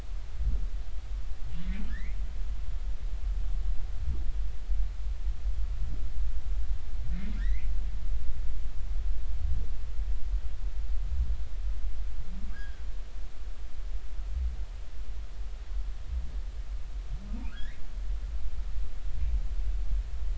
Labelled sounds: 1.9	2.2	humpback whale, 1.5 to 2.5 kHz
7.4	7.7	humpback whale, 1.5 to 2.7 kHz
12.5	12.8	humpback whale, 1.5 to 1.8 kHz
17.5	17.8	humpback whale, 1.2 to 2.2 kHz

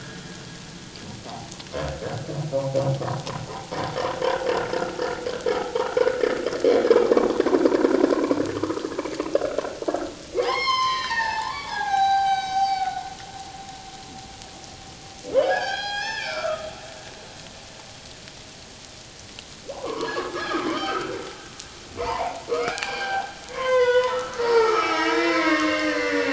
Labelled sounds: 1.2	1.6	humpback whale, 0.78 to 1.3 kHz
2.5	2.8	humpback whale, 0.78 to 1.2 kHz
5.6	6.0	humpback whale, 0.78 to 1.5 kHz
8.6	8.8	humpback whale, 0.97 to 1.4 kHz
10.4	13.1	humpback whale, 0.78 to 6.4 kHz
15.4	16.7	humpback whale, 0.78 to 6.6 kHz
19.7	21.2	humpback whale, 0.78 to 3.2 kHz
22.0	26.3	humpback whale, 0.78 to 6.4 kHz

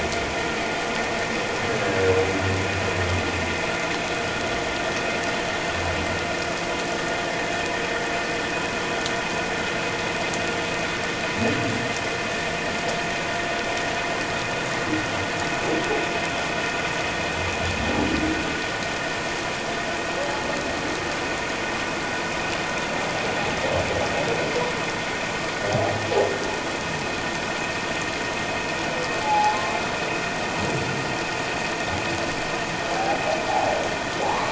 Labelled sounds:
29.2	29.6	humpback whale, 0.78 to 0.91 kHz
32.9	33.2	humpback whale, 0.78 to 0.88 kHz
34.2	34.4	humpback whale, 0.78 to 1.2 kHz

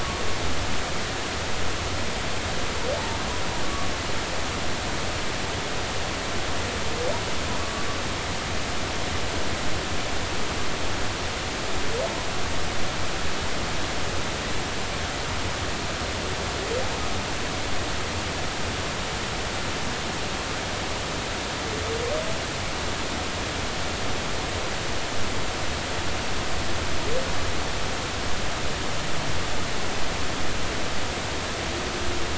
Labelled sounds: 3.6	3.9	humpback whale, 1.1 to 1.2 kHz
7.6	7.8	humpback whale, 1.1 to 1.2 kHz

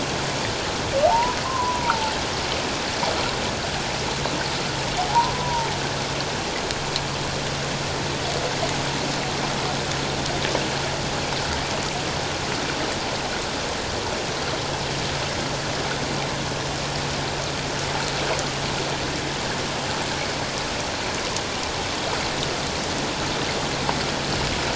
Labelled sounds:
1.1	2.1	humpback whale, 0.78 to 1.2 kHz
5.1	5.7	humpback whale, 0.78 to 1.1 kHz

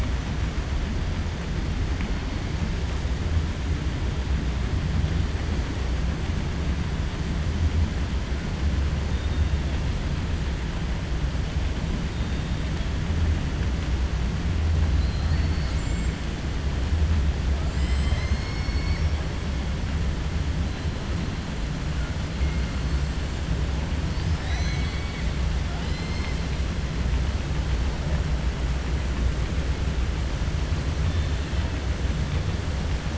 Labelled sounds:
14.9	15.8	killer whale, 3.9 to 5.6 kHz
25.7	26.4	killer whale, 2.0 to 5.7 kHz
31.0	31.7	killer whale, 2.6 to 3.7 kHz

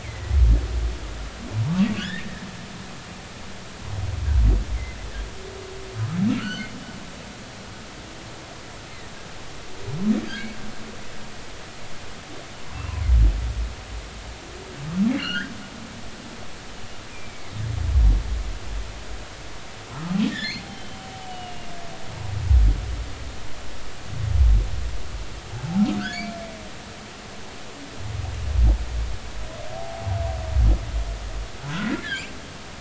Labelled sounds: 0.0	0.4	humpback whale, 1.9 to 2.3 kHz
2.0	2.5	humpback whale, 1.4 to 3.8 kHz
6.0	6.7	humpback whale, 1.2 to 4.7 kHz
15.2	15.5	humpback whale, 1.3 to 3.3 kHz
17.1	17.5	humpback whale, 2.0 to 2.5 kHz
20.3	21.7	humpback whale, 1.7 to 3.2 kHz
26.0	26.2	humpback whale, 4.3 to 5.3 kHz
29.7	30.1	humpback whale, 0.80 to 0.90 kHz
31.7	32.3	humpback whale, 1.3 to 2.8 kHz

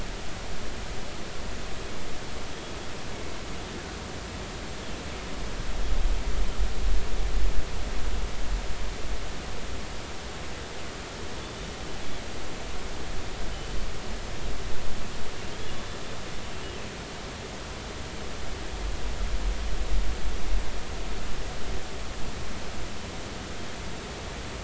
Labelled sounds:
13.5	13.8	killer whale, northern resident, G clan, 2.9 to 3.1 kHz
15.6	15.9	killer whale, northern resident, G clan, 3.3 to 3.5 kHz

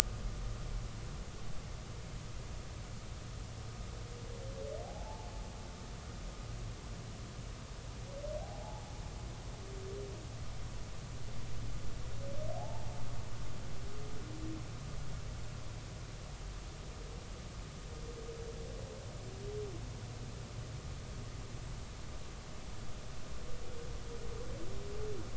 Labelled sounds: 4.8	5.3	humpback whale, 0.80 to 0.93 kHz
8.4	8.8	humpback whale, 0.80 to 0.96 kHz
12.6	12.9	humpback whale, 0.80 to 0.96 kHz

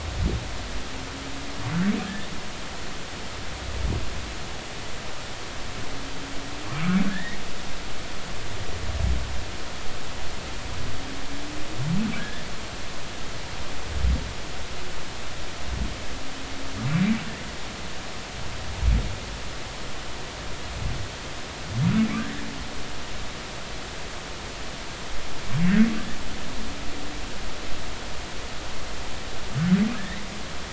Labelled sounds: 7.1	7.4	humpback whale, 1.6 to 2.3 kHz
12.2	12.5	humpback whale, 1.4 to 1.9 kHz
29.9	30.2	humpback whale, 1.6 to 2.1 kHz

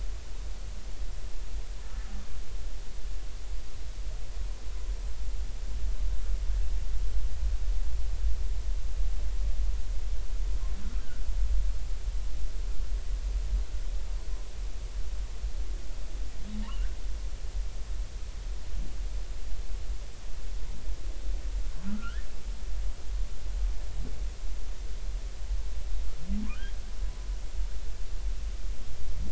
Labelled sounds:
11.0	11.2	humpback whale, 1.3 to 1.6 kHz
16.6	16.9	humpback whale, 2.6 to 3.0 kHz
21.9	22.3	humpback whale, 1.1 to 1.9 kHz
26.4	26.7	humpback whale, 0.96 to 1.7 kHz

